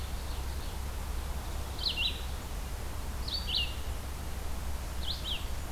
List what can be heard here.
Ovenbird, Red-eyed Vireo, Black-and-white Warbler